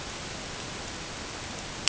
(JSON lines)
{"label": "ambient", "recorder": "HydroMoth"}